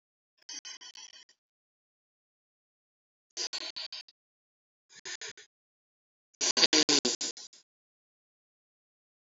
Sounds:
Sniff